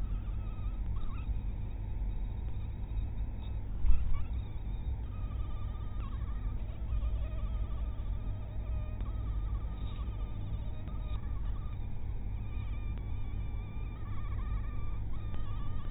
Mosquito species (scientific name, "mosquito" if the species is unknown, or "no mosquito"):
mosquito